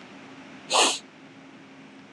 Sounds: Sniff